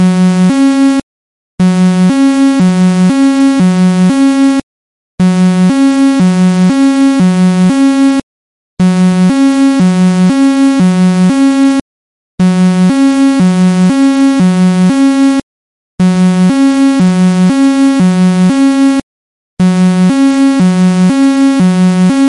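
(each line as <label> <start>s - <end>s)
An emergency alarm rings loudly and repeatedly indoors. 0.0s - 1.1s
An alarm rings loudly three times indoors. 1.5s - 15.4s
An alarm rings loudly three times indoors. 16.0s - 22.3s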